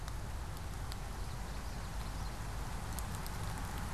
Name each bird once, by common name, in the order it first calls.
Common Yellowthroat